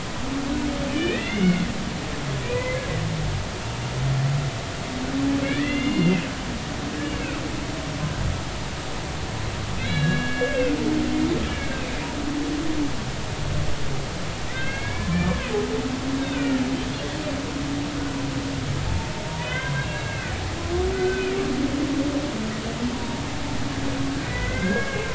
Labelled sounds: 0.9	1.7	humpback whale, 1.4 to 3.0 kHz
2.4	2.8	humpback whale, 0.96 to 2.6 kHz
5.4	6.2	humpback whale, 1.6 to 2.9 kHz
9.8	10.8	humpback whale, 1.4 to 4.0 kHz
14.5	15.5	humpback whale, 0.96 to 2.8 kHz
16.2	16.6	humpback whale, 1.3 to 2.7 kHz
19.4	20.4	humpback whale, 0.96 to 3.7 kHz
20.9	21.4	humpback whale, 1.4 to 2.8 kHz
22.9	23.2	humpback whale, 0.86 to 1.0 kHz
24.2	25.1	humpback whale, 1.4 to 2.2 kHz

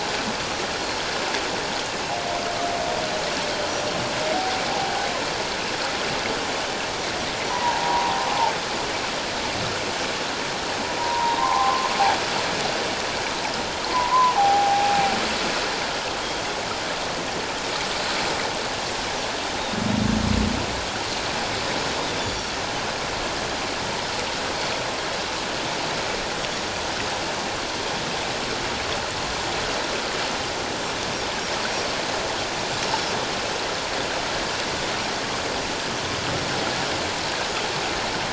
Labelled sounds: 3.7	4.0	Pacific white-sided dolphin, 5.6 to 5.9 kHz
4.7	5.1	humpback whale, 0.78 to 1.0 kHz
7.5	8.1	humpback whale, 0.81 to 1.1 kHz
11.0	11.9	humpback whale, 0.78 to 1.2 kHz
13.8	15.1	humpback whale, 0.78 to 1.2 kHz
22.0	22.5	Pacific white-sided dolphin, 3.4 to 4.7 kHz
32.8	33.1	Pacific white-sided dolphin, 5.0 to 5.4 kHz

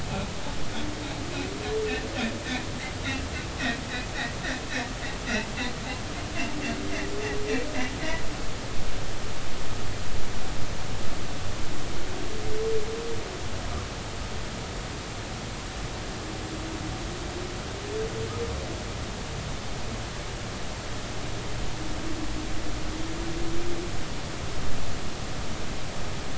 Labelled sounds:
5.3	5.5	humpback whale, 2.5 to 3.0 kHz

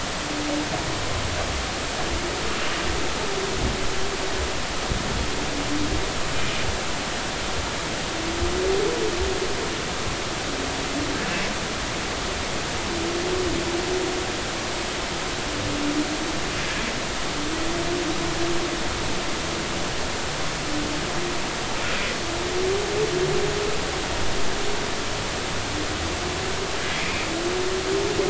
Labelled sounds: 27.0	27.3	humpback whale, 2.3 to 2.6 kHz

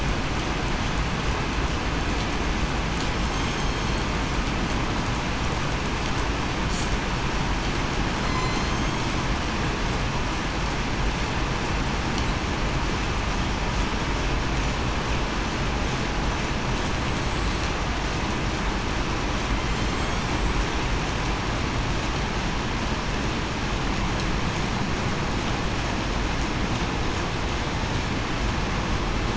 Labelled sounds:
3.3	3.8	killer whale, southern resident, 6.4 to 6.5 kHz
8.2	8.7	killer whale, southern resident, 2.0 to 4.2 kHz
19.6	20.2	killer whale, southern resident, 7.2 to 7.7 kHz

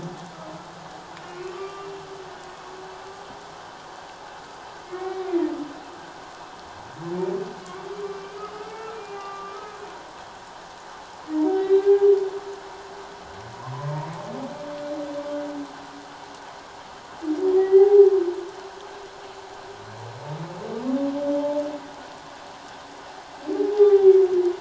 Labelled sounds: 1.3	2.0	humpback whale, 1.1 to 2.8 kHz
4.9	5.3	humpback whale, 1.8 to 2.3 kHz
8.1	9.6	humpback whale, 1.1 to 2.8 kHz
11.6	12.0	humpback whale, 2.3 to 4.0 kHz
17.6	18.1	humpback whale, 0.78 to 2.1 kHz
23.7	24.1	humpback whale, 0.78 to 3.7 kHz

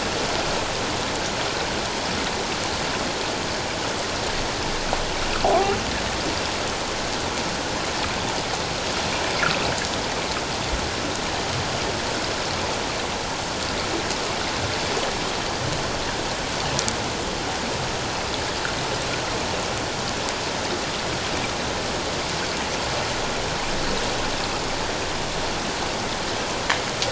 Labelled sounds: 5.5	5.8	fish, 1.0 to 1.3 kHz

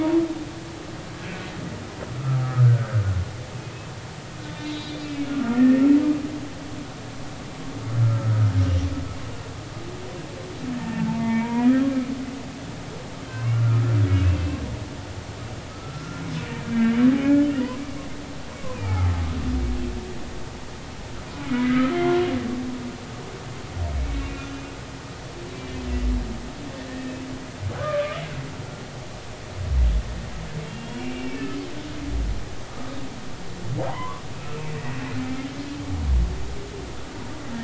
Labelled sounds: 2.1	3.0	humpback whale, 1.2 to 1.6 kHz
4.4	5.8	humpback whale, 1.3 to 4.2 kHz
8.0	8.9	humpback whale, 1.2 to 2.9 kHz
11.1	11.8	humpback whale, 0.83 to 2.4 kHz
13.3	14.6	humpback whale, 0.96 to 2.9 kHz
15.7	16.2	humpback whale, 1.2 to 1.4 kHz
17.1	17.7	humpback whale, 0.80 to 2.0 kHz
18.7	19.1	humpback whale, 0.80 to 2.6 kHz
21.3	22.2	humpback whale, 1.2 to 2.3 kHz
24.0	24.6	humpback whale, 1.3 to 2.8 kHz
26.9	27.2	humpback whale, 1.8 to 1.9 kHz
27.8	28.2	humpback whale, 1.1 to 1.3 kHz
30.7	31.5	humpback whale, 2.1 to 2.9 kHz
33.9	34.2	humpback whale, 0.80 to 1.2 kHz

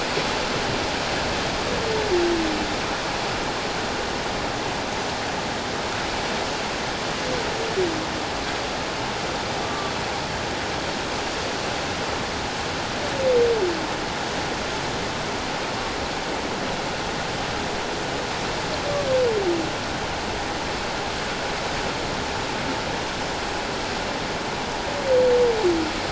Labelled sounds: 9.6	9.9	humpback whale, 1.1 to 1.2 kHz

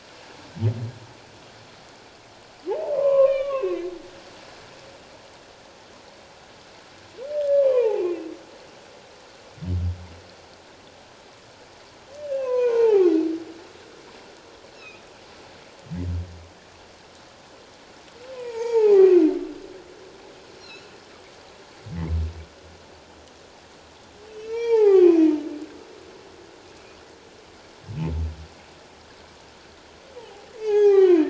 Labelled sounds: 2.9	3.9	humpback whale, 0.94 to 3.7 kHz
7.3	8.1	humpback whale, 0.78 to 1.8 kHz
12.3	13.1	humpback whale, 0.78 to 2.8 kHz
14.8	15.0	humpback whale, 2.3 to 2.8 kHz
18.3	19.2	humpback whale, 0.78 to 2.6 kHz
20.6	20.9	humpback whale, 2.5 to 2.9 kHz
24.3	25.3	humpback whale, 0.78 to 5.7 kHz
30.2	31.2	humpback whale, 0.78 to 6.6 kHz

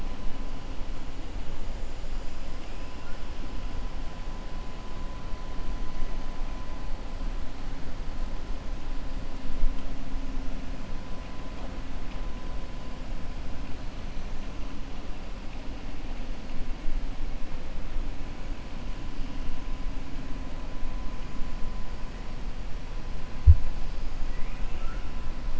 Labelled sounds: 24.3	25.1	killer whale, 1.2 to 3.0 kHz

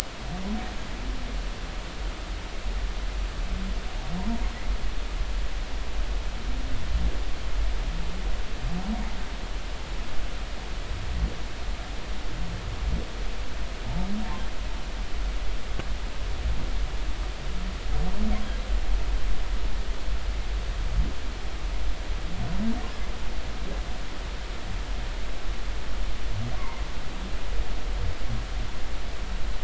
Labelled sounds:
26.6	26.8	humpback whale, 0.86 to 2.2 kHz

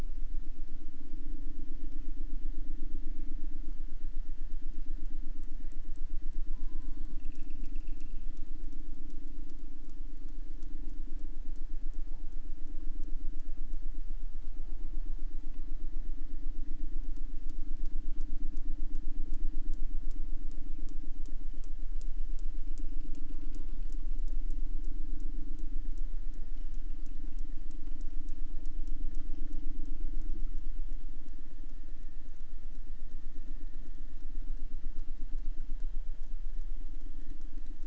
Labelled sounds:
6.5	7.3	killer whale, southern resident, J pod, call S04, 0.59 to 5.3 kHz
23.2	24.0	killer whale, southern resident, J pod, call S04, 0.53 to 4.8 kHz

